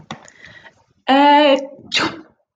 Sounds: Sneeze